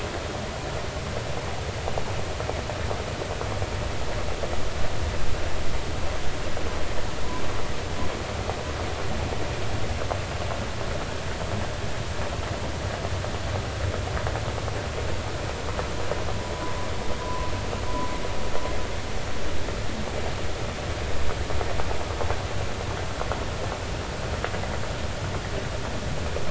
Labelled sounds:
17.2	17.5	humpback whale, 0.96 to 1.1 kHz

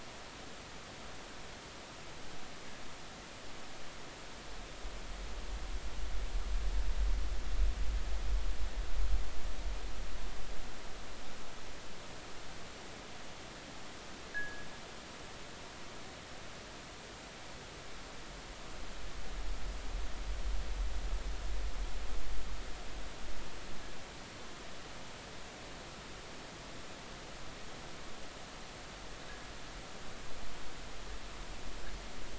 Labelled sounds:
0.4	0.7	fishing gear, 1.7 to 1.9 kHz
14.3	14.7	fishing gear, 1.5 to 1.8 kHz

